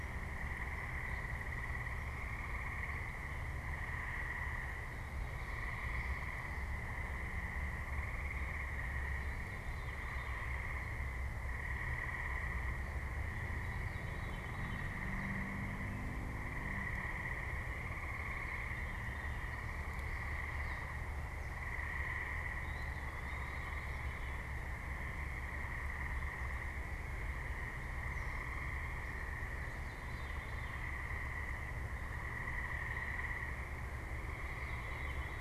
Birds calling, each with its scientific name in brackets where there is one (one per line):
Gray Catbird (Dumetella carolinensis)
Veery (Catharus fuscescens)
Eastern Wood-Pewee (Contopus virens)